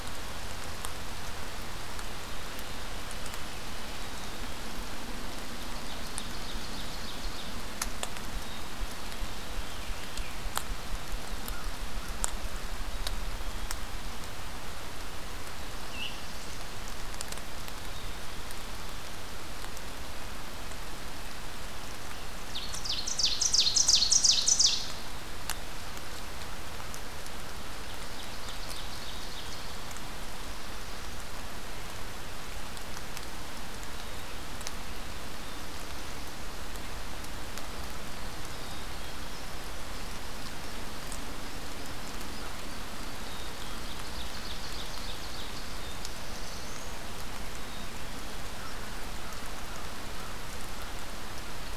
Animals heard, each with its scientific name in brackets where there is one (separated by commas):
American Crow (Corvus brachyrhynchos), Black-capped Chickadee (Poecile atricapillus), Black-throated Blue Warbler (Setophaga caerulescens), Ovenbird (Seiurus aurocapilla)